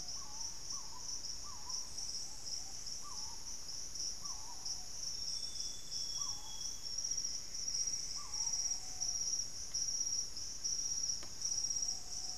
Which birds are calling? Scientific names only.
Querula purpurata, Patagioenas subvinacea, Cyanoloxia rothschildii, Myrmelastes hyperythrus, unidentified bird, Legatus leucophaius